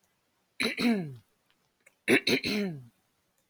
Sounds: Throat clearing